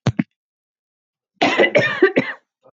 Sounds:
Cough